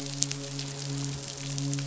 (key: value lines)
label: biophony, midshipman
recorder: SoundTrap 500